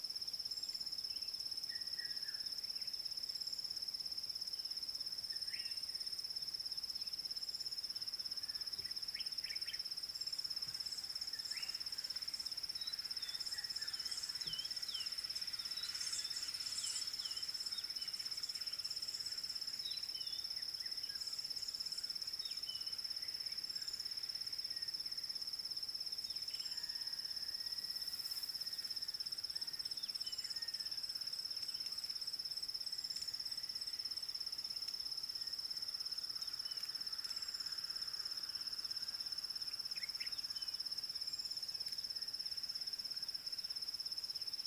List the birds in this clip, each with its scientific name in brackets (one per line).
Common Bulbul (Pycnonotus barbatus)
Red-backed Scrub-Robin (Cercotrichas leucophrys)